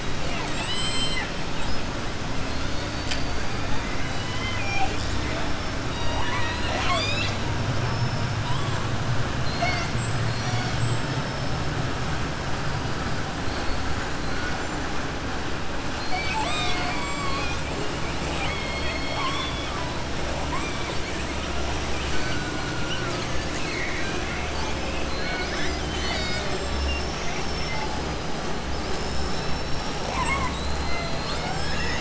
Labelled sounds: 0.2	1.3	killer whale, southern resident, 0.73 to 8.0 kHz
3.9	5.2	killer whale, southern resident, 0.72 to 7.6 kHz
5.8	7.4	killer whale, southern resident, 0.63 to 7.8 kHz
18.2	19.7	killer whale, southern resident, 0.63 to 5.4 kHz
21.9	22.5	killer whale, southern resident, 1.4 to 5.4 kHz
23.5	24.7	killer whale, southern resident, 1.4 to 5.2 kHz

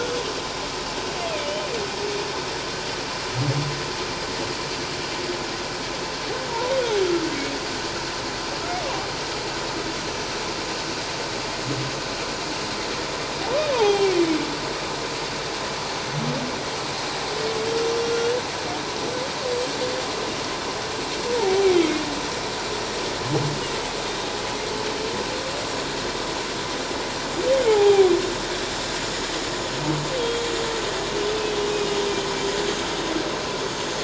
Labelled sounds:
1.2	1.7	humpback whale, 2.3 to 3.1 kHz
10.0	10.3	humpback whale, 6.0 to 6.2 kHz
13.7	14.2	humpback whale, 0.78 to 2.5 kHz
17.9	18.1	humpback whale, 5.5 to 5.7 kHz
21.4	21.7	humpback whale, 0.78 to 0.97 kHz
24.0	24.3	humpback whale, 3.6 to 3.7 kHz
27.7	28.1	humpback whale, 0.78 to 0.91 kHz
30.2	30.5	humpback whale, 3.2 to 3.3 kHz

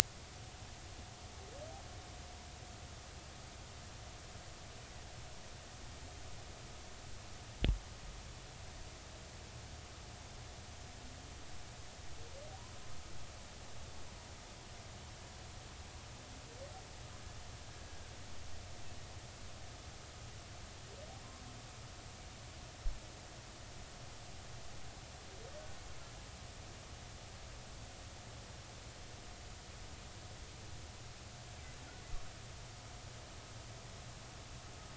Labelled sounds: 17.9	18.1	killer whale, Bigg's (transient), 1.5 to 1.7 kHz

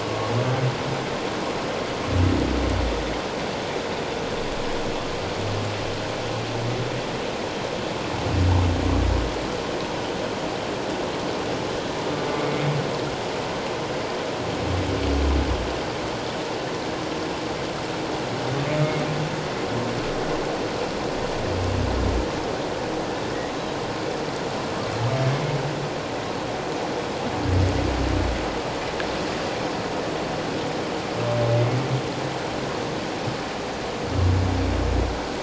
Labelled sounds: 0.0	0.3	humpback whale, 1.1 to 1.2 kHz
12.4	12.6	humpback whale, 2.2 to 2.3 kHz

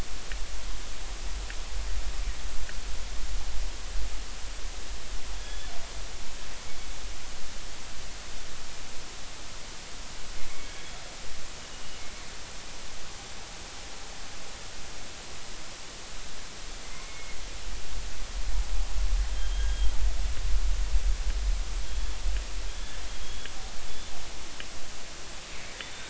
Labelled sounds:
5.4	5.7	killer whale, northern resident, G clan, GG subclan, call N28, 3.3 to 3.5 kHz
11.7	12.0	killer whale, northern resident, G clan, GG subclan, call N23ii, 2.8 to 3.0 kHz
16.9	17.3	killer whale, northern resident, G clan, call N23i, 2.0 to 2.2 kHz
19.3	19.9	killer whale, northern resident, G clan, GG subclan, call N28, 3.1 to 3.3 kHz
21.9	22.1	killer whale, northern resident, G clan, GG subclan, call N28, 3.2 to 3.5 kHz
23.2	23.5	killer whale, northern resident, G clan, GG subclan, call N28, 3.3 to 3.4 kHz

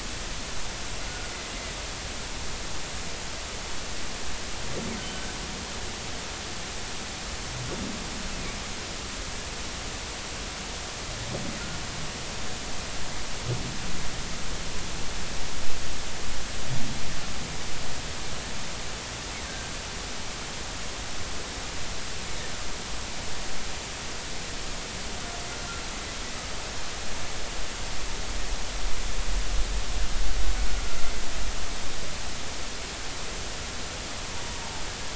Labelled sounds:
1.1	1.3	humpback whale, 1.4 to 1.5 kHz

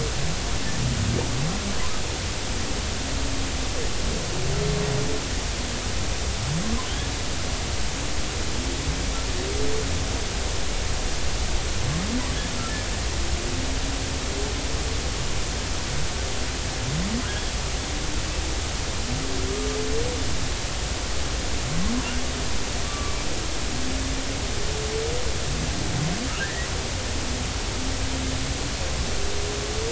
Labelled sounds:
22.8	23.2	humpback whale, 1.1 to 1.3 kHz
26.4	26.7	humpback whale, 1.5 to 2.0 kHz

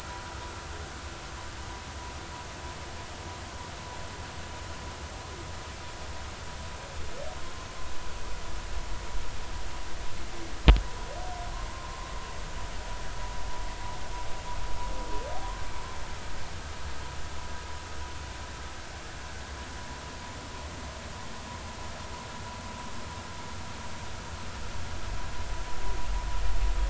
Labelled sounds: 11.7	12.1	humpback whale, 0.96 to 1.1 kHz

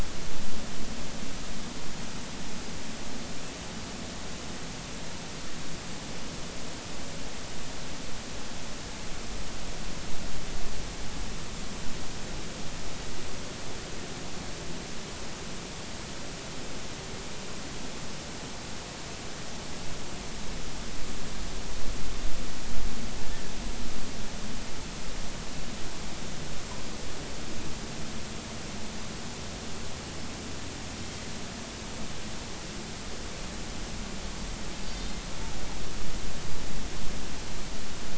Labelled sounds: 34.9	35.2	Pacific white-sided dolphin, 3.6 to 3.7 kHz

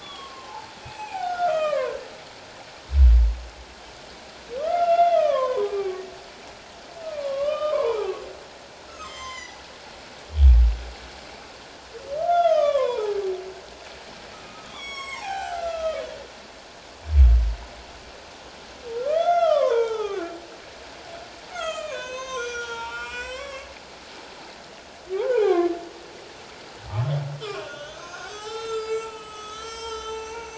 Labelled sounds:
0.0	2.0	humpback whale, 0.78 to 3.5 kHz
4.6	6.0	humpback whale, 0.94 to 3.6 kHz
7.0	8.1	humpback whale, 0.78 to 3.7 kHz
8.9	9.6	humpback whale, 0.97 to 6.3 kHz
12.2	13.2	humpback whale, 0.78 to 3.7 kHz
14.3	16.0	humpback whale, 0.78 to 7.8 kHz
19.0	20.3	humpback whale, 0.78 to 6.3 kHz
21.5	23.7	humpback whale, 0.84 to 7.8 kHz
25.1	25.7	humpback whale, 0.78 to 2.5 kHz
27.4	30.4	humpback whale, 0.78 to 7.9 kHz

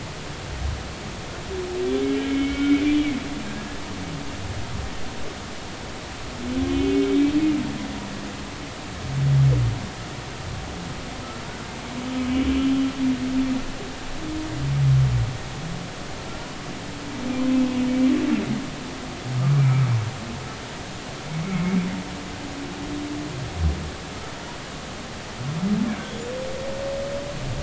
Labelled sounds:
2.2	2.8	humpback whale, 1.3 to 3.2 kHz
6.6	7.3	humpback whale, 2.2 to 3.8 kHz
12.6	12.9	humpback whale, 3.2 to 3.3 kHz
17.9	18.1	humpback whale, 2.2 to 2.4 kHz
19.4	19.8	humpback whale, 1.1 to 2.4 kHz

